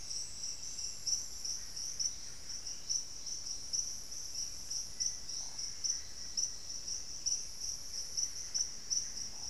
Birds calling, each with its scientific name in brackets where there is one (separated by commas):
Black-faced Antthrush (Formicarius analis), Buff-breasted Wren (Cantorchilus leucotis)